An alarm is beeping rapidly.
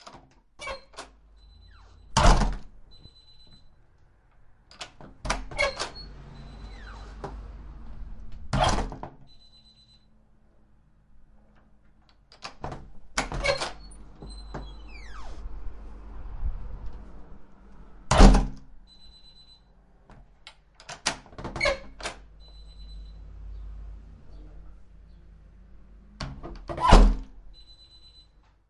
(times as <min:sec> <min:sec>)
0:01.2 0:01.9, 0:02.6 0:03.8, 0:06.4 0:07.5, 0:09.1 0:10.1, 0:18.8 0:19.7, 0:22.3 0:23.3, 0:27.4 0:28.5